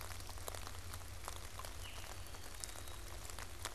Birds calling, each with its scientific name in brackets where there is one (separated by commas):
Black-capped Chickadee (Poecile atricapillus), Veery (Catharus fuscescens)